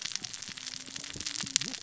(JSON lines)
{"label": "biophony, cascading saw", "recorder": "SoundTrap 600 or HydroMoth"}